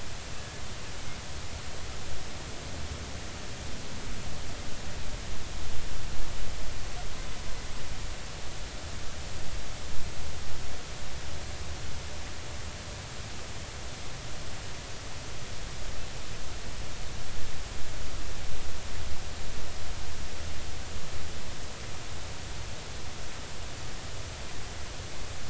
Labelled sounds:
0.4	0.6	killer whale, Bigg's (transient), 1.6 to 1.8 kHz

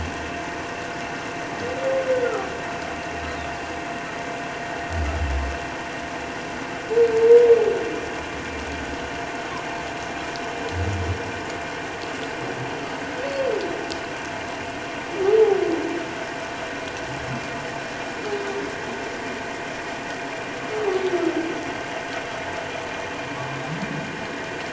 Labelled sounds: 2.2	2.5	humpback whale, 1.1 to 1.5 kHz
13.2	13.5	humpback whale, 4.2 to 4.6 kHz

